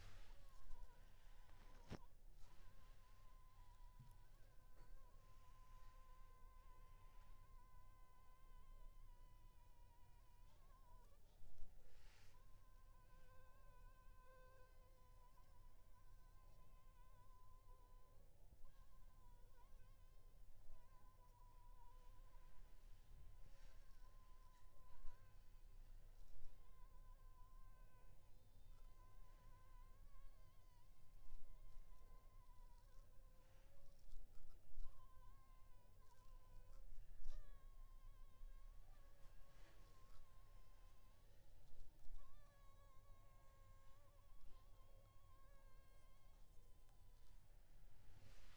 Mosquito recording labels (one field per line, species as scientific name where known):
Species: Anopheles funestus s.l.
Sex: female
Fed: unfed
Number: one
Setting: cup